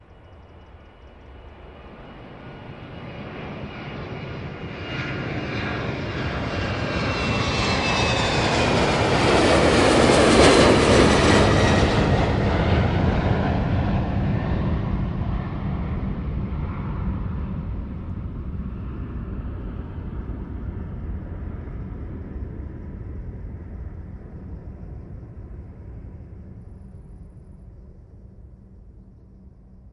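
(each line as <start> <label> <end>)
0.1 A jet flies overhead, growing louder as it approaches and quieter as it moves away. 17.2
17.3 A jet flying away, gradually becoming quieter until it disappears. 29.8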